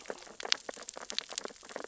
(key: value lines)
label: biophony, sea urchins (Echinidae)
recorder: SoundTrap 600 or HydroMoth